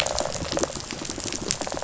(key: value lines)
label: biophony, rattle response
recorder: SoundTrap 500